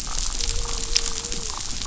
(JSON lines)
{"label": "biophony", "recorder": "SoundTrap 500"}